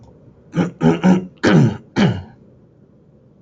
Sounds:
Throat clearing